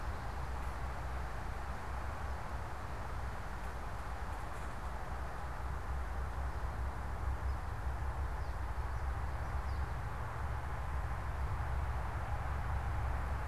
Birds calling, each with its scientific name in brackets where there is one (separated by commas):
unidentified bird